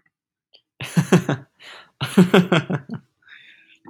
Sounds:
Laughter